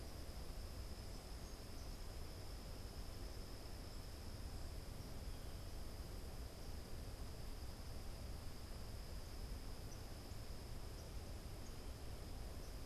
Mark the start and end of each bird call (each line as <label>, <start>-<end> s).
unidentified bird, 0.0-12.9 s